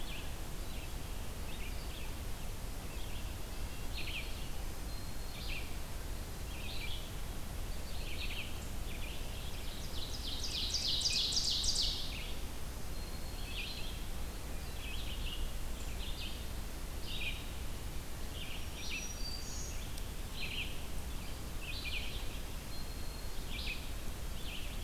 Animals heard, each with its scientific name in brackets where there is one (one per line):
Red-eyed Vireo (Vireo olivaceus)
Black-throated Green Warbler (Setophaga virens)
Red-breasted Nuthatch (Sitta canadensis)
Ovenbird (Seiurus aurocapilla)